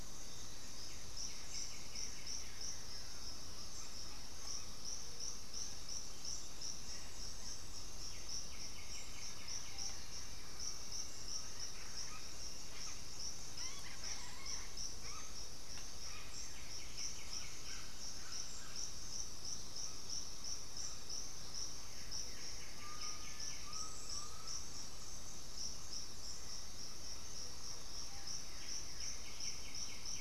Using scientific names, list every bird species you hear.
Formicarius analis, Pachyramphus polychopterus, Saltator coerulescens, Orthopsittaca manilatus, unidentified bird, Xiphorhynchus elegans, Lipaugus vociferans, Crypturellus undulatus, Crypturellus cinereus